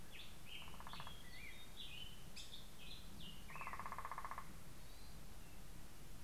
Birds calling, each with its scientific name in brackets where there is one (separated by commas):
Hermit Thrush (Catharus guttatus), Northern Flicker (Colaptes auratus), Black-headed Grosbeak (Pheucticus melanocephalus)